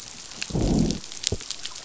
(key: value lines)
label: biophony, growl
recorder: SoundTrap 500